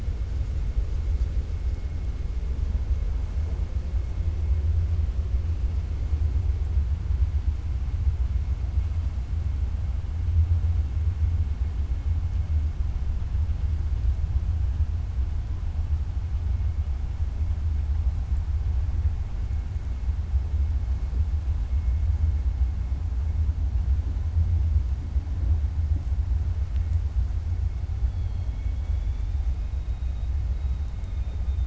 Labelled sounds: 28.0	29.4	killer whale, 2.2 to 4.5 kHz

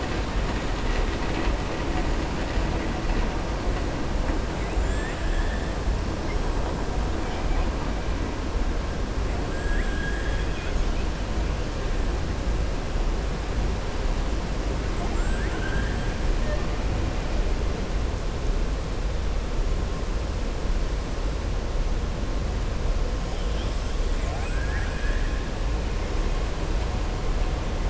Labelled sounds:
4.7	5.7	killer whale, southern resident, 1.6 to 8.0 kHz
9.6	10.8	killer whale, southern resident, 1.4 to 3.5 kHz
14.9	16.1	killer whale, southern resident, 0.72 to 3.3 kHz
24.1	25.4	killer whale, southern resident, 0.69 to 8.0 kHz

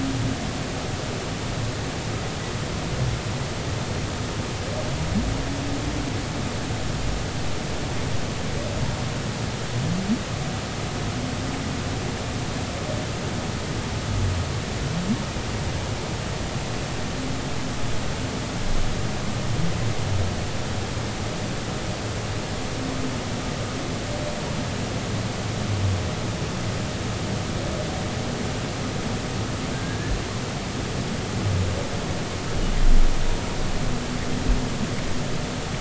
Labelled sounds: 29.7	30.2	humpback whale, 1.5 to 1.8 kHz

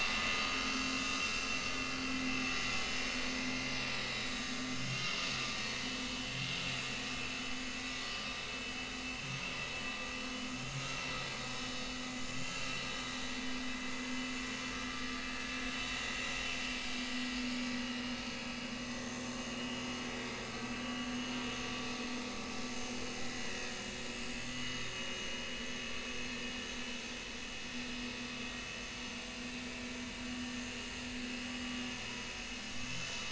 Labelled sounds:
0.6	0.9	vessel noise, 1.2 to 1.3 kHz
2.5	2.8	vessel noise, 1.8 to 5.0 kHz
4.1	5.1	vessel noise, 3.5 to 7.1 kHz
6.0	6.3	vessel noise, 2.9 to 3.0 kHz
11.3	11.5	vessel noise, 4.3 to 4.4 kHz
17.8	18.6	vessel noise, 2.4 to 2.9 kHz
19.5	19.9	vessel noise, 2.8 to 3.2 kHz
24.5	24.8	vessel noise, 2.8 to 6.6 kHz
32.8	33.2	vessel noise, 6.5 to 7.1 kHz

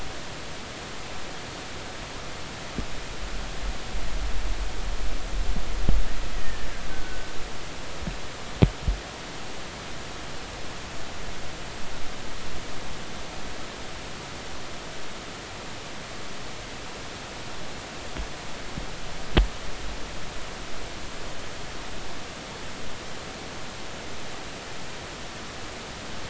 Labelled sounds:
6.3	7.3	killer whale, Bigg's (transient), 1.4 to 2.0 kHz

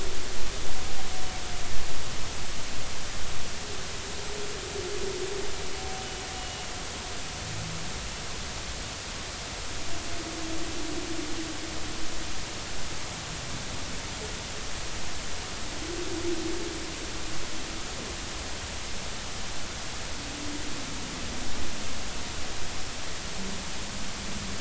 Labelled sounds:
6.3	6.7	humpback whale, 2.8 to 2.9 kHz

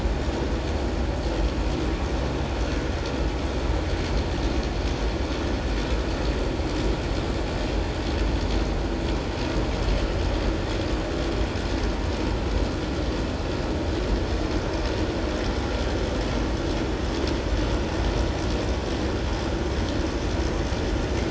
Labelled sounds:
2.5	2.8	vessel noise, 4.2 to 4.5 kHz

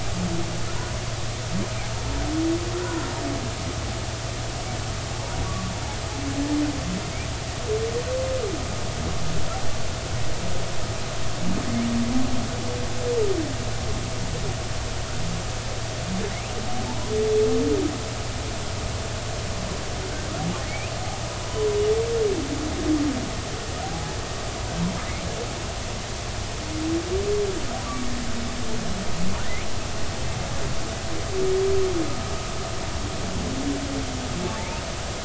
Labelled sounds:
5.5	5.7	humpback whale, 1.1 to 1.2 kHz
16.3	16.6	humpback whale, 1.9 to 2.9 kHz
23.8	24.2	humpback whale, 0.80 to 0.90 kHz
34.4	34.8	humpback whale, 0.83 to 2.8 kHz

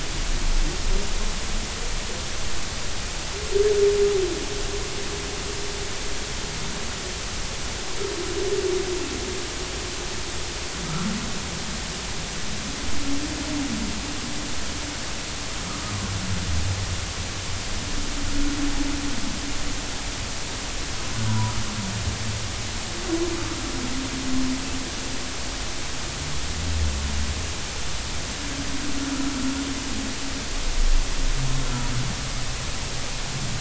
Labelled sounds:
21.3	21.5	humpback whale, 0.93 to 1.0 kHz

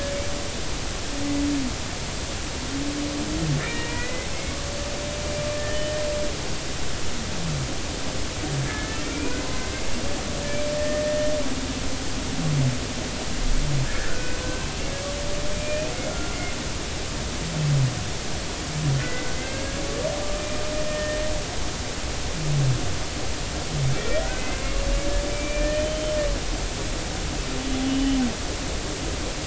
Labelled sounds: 3.6	4.3	humpback whale, 1.7 to 2.6 kHz
5.5	6.0	humpback whale, 1.7 to 1.9 kHz
8.6	9.4	humpback whale, 1.6 to 2.5 kHz
10.8	11.3	humpback whale, 1.8 to 1.9 kHz
13.9	14.7	humpback whale, 1.3 to 1.9 kHz
15.5	16.4	humpback whale, 1.3 to 2.6 kHz
19.0	19.8	humpback whale, 1.5 to 2.2 kHz
20.9	21.2	humpback whale, 1.8 to 1.9 kHz
23.9	24.6	humpback whale, 1.8 to 2.7 kHz
25.3	26.2	humpback whale, 1.7 to 3.2 kHz
27.8	28.2	humpback whale, 2.9 to 3.1 kHz

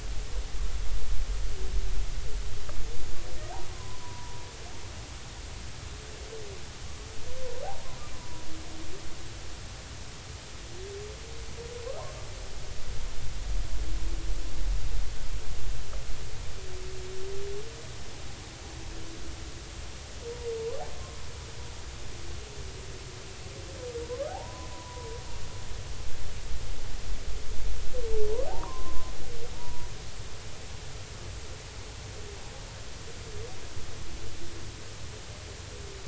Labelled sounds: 3.7	4.4	humpback whale, 0.86 to 1.1 kHz
8.1	8.4	humpback whale, 0.93 to 1.1 kHz
24.1	25.1	humpback whale, 0.80 to 1.3 kHz
28.5	29.9	humpback whale, 0.80 to 1.3 kHz

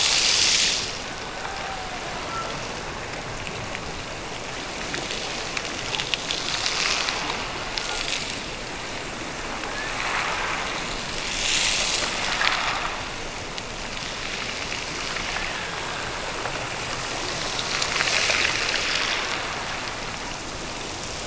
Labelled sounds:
1.4	2.7	killer whale, Bigg's (transient), Gulf of Alaska transient, 0.59 to 1.5 kHz
9.7	10.8	killer whale, Bigg's (transient), Gulf of Alaska transient, 1.5 to 2.0 kHz
15.1	16.3	killer whale, Bigg's (transient), Gulf of Alaska transient, 1.5 to 2.2 kHz

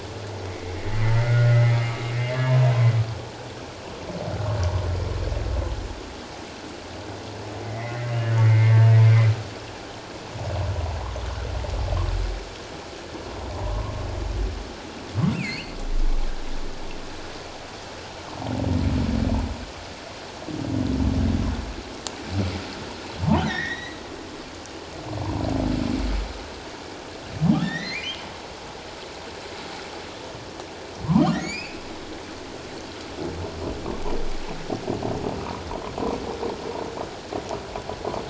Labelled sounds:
0.5	2.9	humpback whale, 0.88 to 2.3 kHz
7.6	8.9	humpback whale, 1.7 to 2.3 kHz
13.5	13.9	humpback whale, 0.78 to 1.1 kHz
15.3	15.7	humpback whale, 2.0 to 4.7 kHz
23.4	24.0	humpback whale, 1.7 to 6.2 kHz
27.6	28.1	humpback whale, 1.7 to 4.5 kHz
31.0	31.8	humpback whale, 0.84 to 5.2 kHz

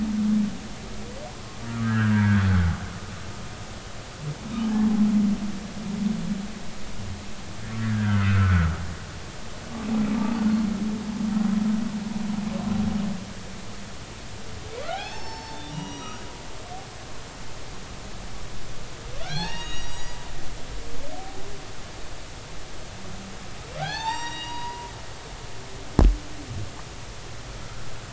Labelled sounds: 1.7	2.5	humpback whale, 1.1 to 1.7 kHz
4.7	5.0	humpback whale, 0.80 to 0.90 kHz
7.8	8.7	humpback whale, 1.2 to 2.1 kHz
14.8	16.2	humpback whale, 0.80 to 5.8 kHz
19.2	20.2	humpback whale, 0.80 to 6.8 kHz
23.8	24.9	humpback whale, 0.80 to 7.6 kHz

